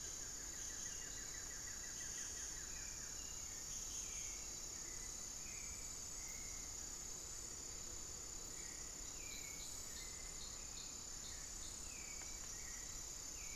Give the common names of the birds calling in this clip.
Buff-throated Woodcreeper, unidentified bird, Hauxwell's Thrush